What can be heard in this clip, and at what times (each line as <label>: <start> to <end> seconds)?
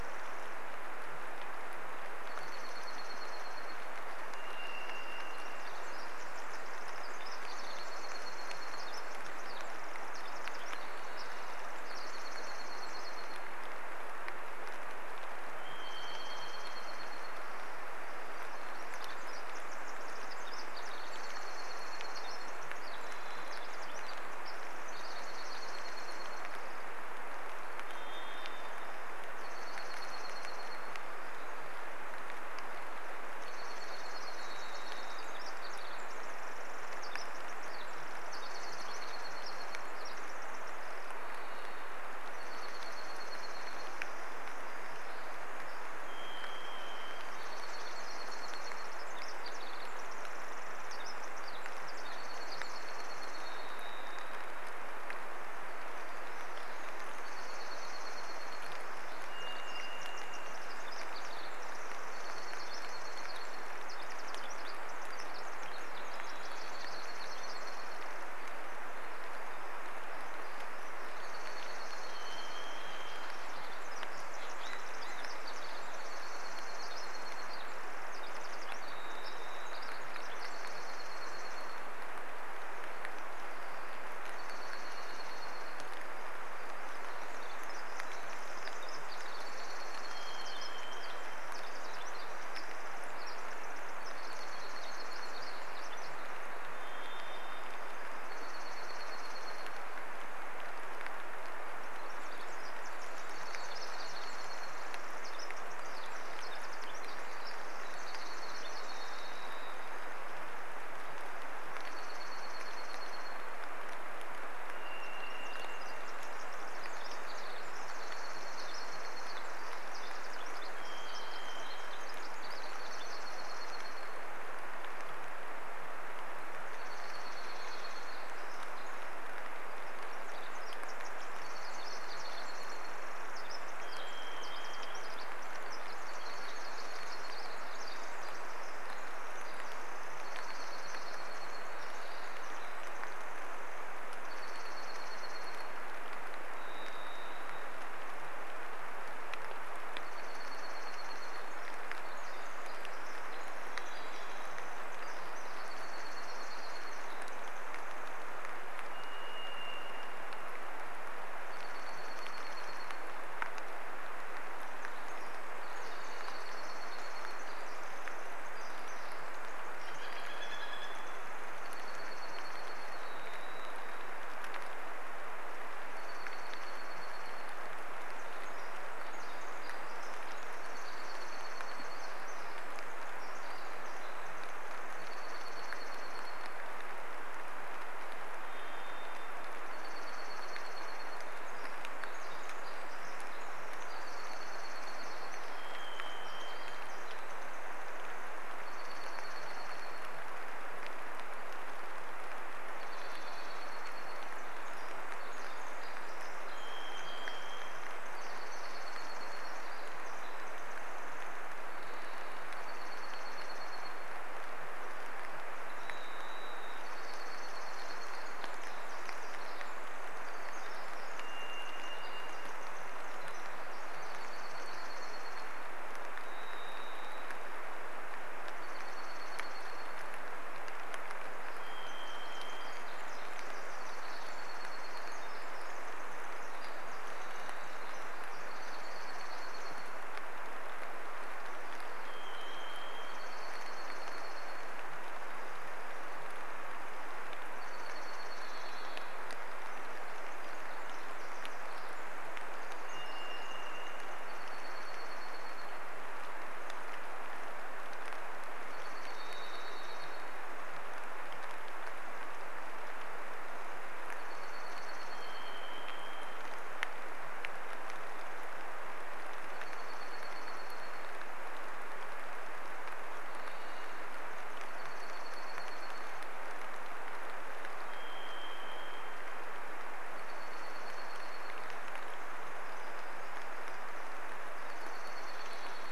Pacific Wren song: 0 to 2 seconds
rain: 0 to 286 seconds
Dark-eyed Junco song: 2 to 4 seconds
Varied Thrush song: 4 to 6 seconds
Pacific Wren song: 4 to 12 seconds
Dark-eyed Junco song: 6 to 10 seconds
Varied Thrush song: 10 to 12 seconds
Dark-eyed Junco song: 12 to 18 seconds
Varied Thrush song: 14 to 18 seconds
Pacific Wren song: 18 to 28 seconds
Dark-eyed Junco song: 20 to 36 seconds
Varied Thrush song: 22 to 24 seconds
Varied Thrush song: 26 to 30 seconds
Varied Thrush song: 34 to 36 seconds
Pacific Wren song: 34 to 42 seconds
Dark-eyed Junco song: 38 to 40 seconds
Varied Thrush song: 40 to 42 seconds
Dark-eyed Junco song: 42 to 44 seconds
Pacific Wren song: 44 to 46 seconds
Varied Thrush song: 46 to 48 seconds
Dark-eyed Junco song: 46 to 50 seconds
Pacific Wren song: 48 to 54 seconds
Dark-eyed Junco song: 52 to 54 seconds
Varied Thrush song: 52 to 56 seconds
Dark-eyed Junco song: 56 to 60 seconds
Pacific Wren song: 56 to 70 seconds
Varied Thrush song: 58 to 62 seconds
Dark-eyed Junco song: 62 to 64 seconds
Dark-eyed Junco song: 66 to 68 seconds
Varied Thrush song: 66 to 68 seconds
Dark-eyed Junco song: 70 to 74 seconds
Varied Thrush song: 72 to 74 seconds
Pacific Wren song: 72 to 84 seconds
unidentified sound: 74 to 76 seconds
Dark-eyed Junco song: 76 to 78 seconds
Varied Thrush song: 78 to 80 seconds
Dark-eyed Junco song: 80 to 82 seconds
Dark-eyed Junco song: 84 to 86 seconds
Varied Thrush song: 84 to 86 seconds
Pacific Wren song: 86 to 96 seconds
Dark-eyed Junco song: 88 to 92 seconds
Varied Thrush song: 90 to 92 seconds
Dark-eyed Junco song: 94 to 96 seconds
Varied Thrush song: 96 to 98 seconds
Dark-eyed Junco song: 98 to 100 seconds
Pacific Wren song: 100 to 110 seconds
Dark-eyed Junco song: 102 to 106 seconds
Varied Thrush song: 108 to 110 seconds
Dark-eyed Junco song: 108 to 114 seconds
Varied Thrush song: 114 to 118 seconds
Pacific Wren song: 114 to 124 seconds
Dark-eyed Junco song: 118 to 120 seconds
Varied Thrush song: 120 to 122 seconds
Dark-eyed Junco song: 122 to 124 seconds
Varied Thrush song: 124 to 128 seconds
Dark-eyed Junco song: 126 to 134 seconds
Pacific Wren song: 128 to 144 seconds
Varied Thrush song: 132 to 136 seconds
Dark-eyed Junco song: 136 to 138 seconds
Dark-eyed Junco song: 140 to 142 seconds
Varied Thrush song: 140 to 144 seconds
Dark-eyed Junco song: 144 to 146 seconds
Varied Thrush song: 146 to 148 seconds
Dark-eyed Junco song: 150 to 152 seconds
Pacific Wren song: 150 to 158 seconds
Varied Thrush song: 152 to 156 seconds
Dark-eyed Junco song: 154 to 158 seconds
Varied Thrush song: 158 to 162 seconds
Dark-eyed Junco song: 160 to 164 seconds
Varied Thrush song: 164 to 168 seconds
Pacific Wren song: 164 to 172 seconds
Dark-eyed Junco song: 166 to 168 seconds
Northern Flicker call: 170 to 172 seconds
Dark-eyed Junco song: 170 to 174 seconds
Varied Thrush song: 172 to 174 seconds
Dark-eyed Junco song: 176 to 178 seconds
Pacific Wren song: 178 to 186 seconds
Dark-eyed Junco song: 180 to 192 seconds
Varied Thrush song: 188 to 190 seconds
Pacific Wren song: 190 to 198 seconds
Dark-eyed Junco song: 194 to 196 seconds
Varied Thrush song: 194 to 198 seconds
Dark-eyed Junco song: 198 to 200 seconds
Varied Thrush song: 202 to 204 seconds
Dark-eyed Junco song: 202 to 206 seconds
Pacific Wren song: 204 to 212 seconds
Varied Thrush song: 206 to 208 seconds
Dark-eyed Junco song: 208 to 210 seconds
Varied Thrush song: 210 to 218 seconds
Dark-eyed Junco song: 212 to 214 seconds
Dark-eyed Junco song: 216 to 220 seconds
Pacific Wren song: 218 to 226 seconds
Varied Thrush song: 220 to 224 seconds
Dark-eyed Junco song: 224 to 226 seconds
Varied Thrush song: 226 to 228 seconds
Dark-eyed Junco song: 228 to 230 seconds
Varied Thrush song: 230 to 234 seconds
Pacific Wren song: 230 to 240 seconds
Dark-eyed Junco song: 232 to 236 seconds
Varied Thrush song: 236 to 238 seconds
Dark-eyed Junco song: 238 to 240 seconds
Varied Thrush song: 242 to 244 seconds
Dark-eyed Junco song: 242 to 250 seconds
Varied Thrush song: 248 to 250 seconds
Pacific Wren song: 250 to 254 seconds
Varied Thrush song: 252 to 256 seconds
Dark-eyed Junco song: 254 to 256 seconds
Dark-eyed Junco song: 258 to 262 seconds
Varied Thrush song: 258 to 262 seconds
Dark-eyed Junco song: 264 to 266 seconds
Varied Thrush song: 264 to 268 seconds
Dark-eyed Junco song: 268 to 272 seconds
Varied Thrush song: 272 to 274 seconds
Dark-eyed Junco song: 274 to 278 seconds
Varied Thrush song: 276 to 280 seconds
Dark-eyed Junco song: 280 to 282 seconds
Dark-eyed Junco song: 284 to 286 seconds
Varied Thrush song: 284 to 286 seconds